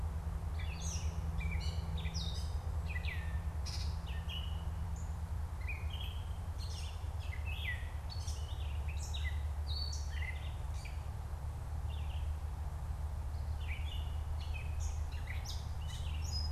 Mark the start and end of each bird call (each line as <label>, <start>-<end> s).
Gray Catbird (Dumetella carolinensis), 0.0-16.5 s
Red-eyed Vireo (Vireo olivaceus), 11.7-14.1 s